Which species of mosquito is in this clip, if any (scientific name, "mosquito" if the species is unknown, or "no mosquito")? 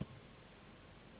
Anopheles gambiae s.s.